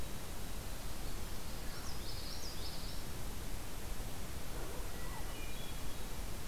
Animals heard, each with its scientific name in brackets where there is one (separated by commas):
Common Yellowthroat (Geothlypis trichas), Hermit Thrush (Catharus guttatus)